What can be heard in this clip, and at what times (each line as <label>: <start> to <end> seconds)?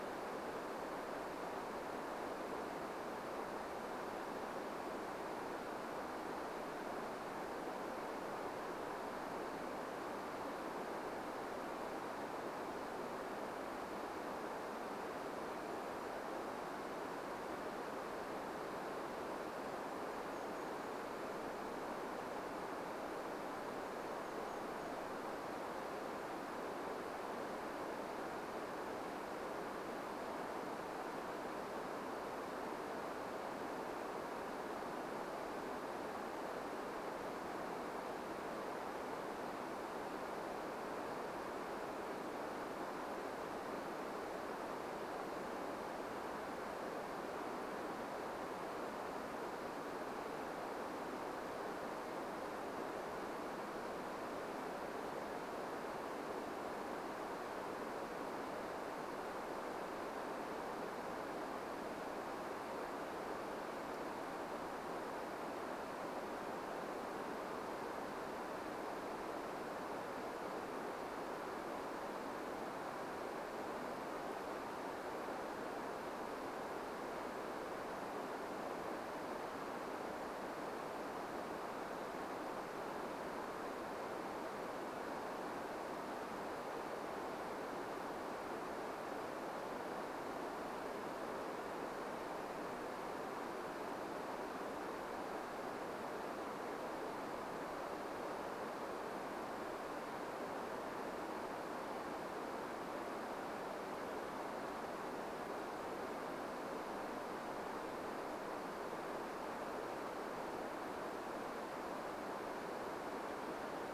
Brown Creeper call: 14 to 16 seconds
Golden-crowned Kinglet song: 18 to 26 seconds